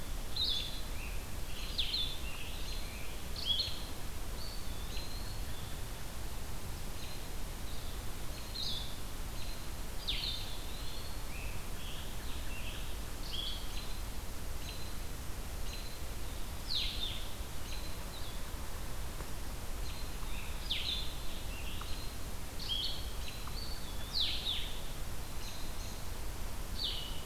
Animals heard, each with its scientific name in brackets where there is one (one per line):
Blue-headed Vireo (Vireo solitarius)
American Robin (Turdus migratorius)
Eastern Wood-Pewee (Contopus virens)
Scarlet Tanager (Piranga olivacea)